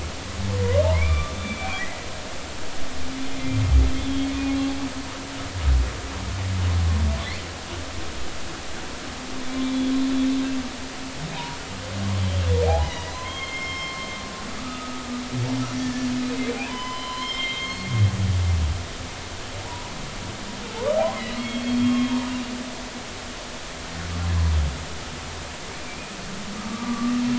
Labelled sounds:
0.9	1.9	humpback whale, 1.1 to 3.6 kHz
4.1	4.3	humpback whale, 3.2 to 3.3 kHz
9.6	9.9	humpback whale, 3.3 to 3.5 kHz
12.6	14.1	humpback whale, 0.80 to 5.4 kHz
14.6	16.1	humpback whale, 1.1 to 5.7 kHz
16.5	17.9	humpback whale, 0.90 to 5.1 kHz
19.7	19.9	humpback whale, 0.90 to 1.0 kHz
21.4	22.1	humpback whale, 1.0 to 3.3 kHz
25.7	26.2	humpback whale, 2.2 to 2.5 kHz
26.7	27.1	humpback whale, 1.1 to 1.3 kHz

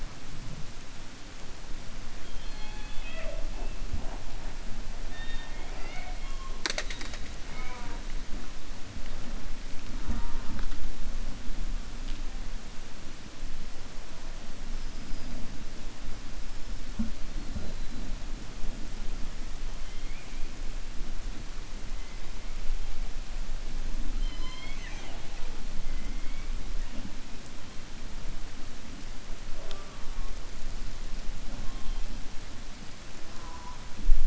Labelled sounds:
19.9	20.4	killer whale, 2.1 to 3.5 kHz
24.1	25.5	killer whale, 0.49 to 6.3 kHz
25.9	26.5	killer whale, 1.4 to 2.4 kHz

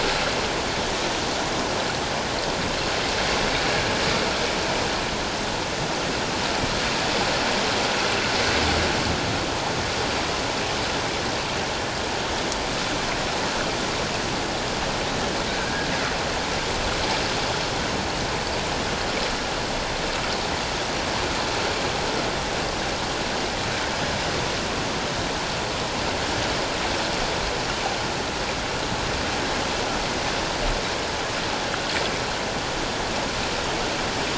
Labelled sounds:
15.5	15.9	killer whale, northern resident, G clan, GI subclan, I11 pod, 1.5 to 1.8 kHz

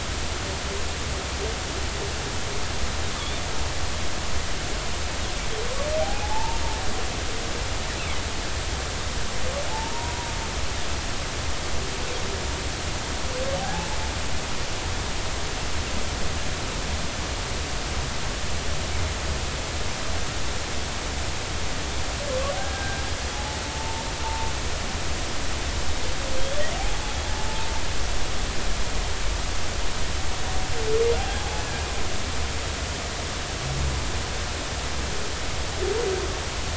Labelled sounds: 6.0	6.6	humpback whale, 0.80 to 0.99 kHz
9.7	10.3	humpback whale, 0.80 to 1.0 kHz
13.6	14.0	humpback whale, 0.80 to 0.93 kHz
22.6	24.5	humpback whale, 0.80 to 1.7 kHz
26.4	26.7	humpback whale, 3.1 to 3.5 kHz
31.2	31.6	humpback whale, 0.80 to 0.90 kHz

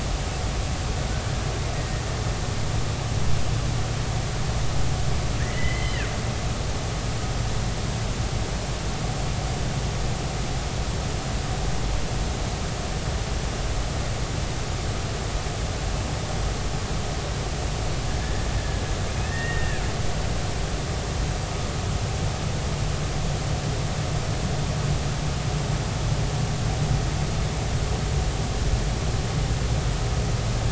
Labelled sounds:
1.7	2.0	killer whale, Bigg's (transient), 1.8 to 2.0 kHz
5.4	6.1	killer whale, Bigg's (transient), 1.4 to 3.1 kHz
18.2	18.5	killer whale, Bigg's (transient), 1.7 to 1.9 kHz
19.2	19.8	killer whale, Bigg's (transient), 1.6 to 2.0 kHz

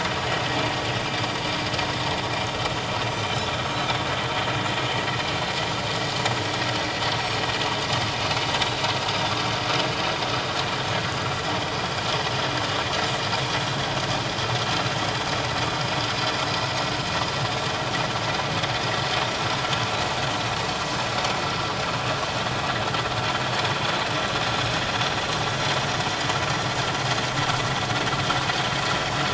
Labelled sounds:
3.1	3.5	Pacific white-sided dolphin, 5.8 to 7.2 kHz
7.2	7.5	Pacific white-sided dolphin, 5.4 to 5.7 kHz
8.6	8.9	Pacific white-sided dolphin, 3.8 to 4.0 kHz
19.2	19.5	Pacific white-sided dolphin, 5.4 to 5.8 kHz

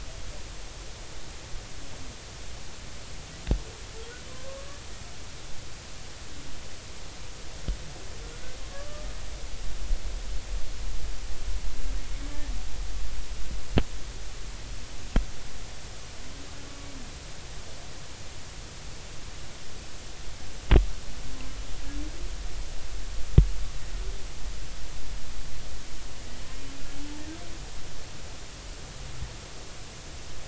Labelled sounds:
8.7	9.1	humpback whale, 1.1 to 1.2 kHz

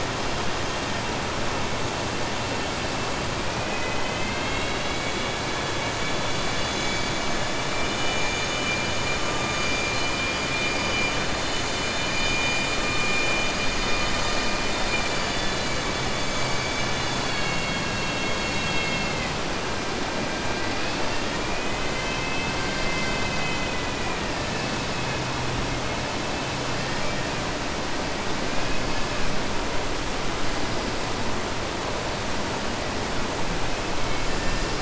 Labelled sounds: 26.7	27.3	killer whale, southern resident, 1.8 to 4.2 kHz
34.0	34.6	killer whale, southern resident, 1.8 to 3.5 kHz

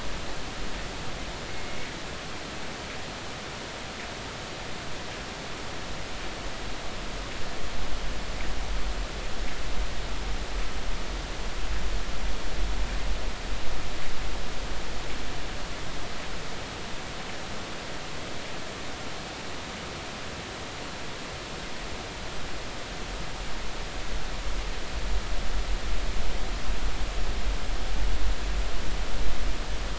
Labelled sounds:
1.5	1.9	killer whale, northern resident, G clan, GI subclan, call N24i, 2.1 to 2.3 kHz

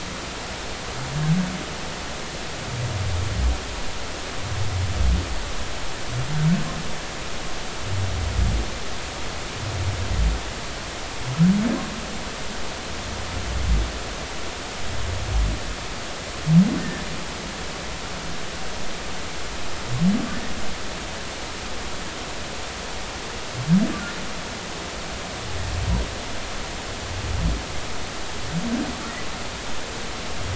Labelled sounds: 16.8	17.1	humpback whale, 1.7 to 1.9 kHz

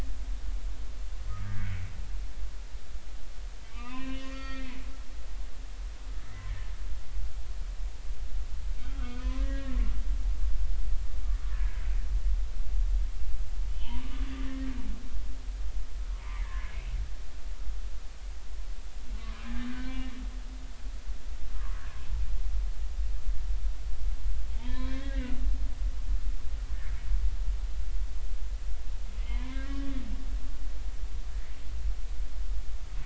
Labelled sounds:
1.3	1.8	humpback whale, 1.2 to 2.3 kHz
3.6	4.8	humpback whale, 0.90 to 4.6 kHz
8.9	9.8	humpback whale, 0.96 to 3.0 kHz
11.5	11.8	humpback whale, 1.6 to 1.9 kHz
13.7	14.7	humpback whale, 1.1 to 3.3 kHz
16.2	16.7	humpback whale, 1.5 to 2.3 kHz
19.1	20.1	humpback whale, 0.99 to 2.1 kHz
20.8	21.8	humpback whale, 0.96 to 2.4 kHz
24.6	25.4	humpback whale, 0.86 to 4.0 kHz
29.3	29.9	humpback whale, 0.93 to 3.1 kHz

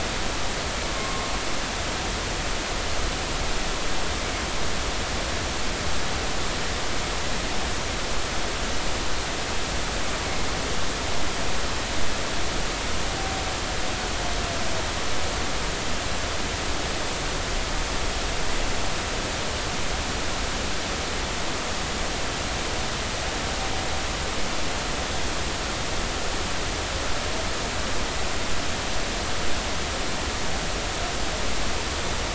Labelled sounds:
0.9	1.3	humpback whale, 1.0 to 1.1 kHz

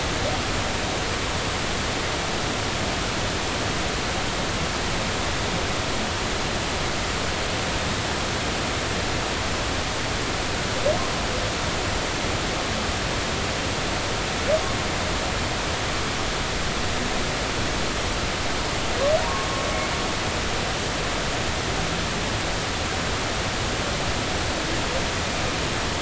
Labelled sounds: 19.2	19.5	humpback whale, 0.90 to 1.1 kHz

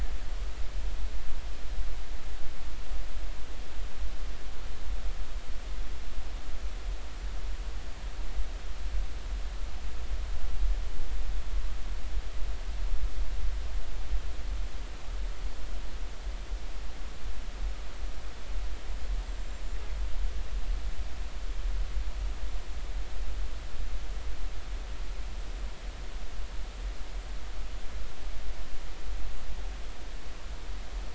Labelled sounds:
19.3	19.6	killer whale, northern resident, 7.2 to 7.6 kHz

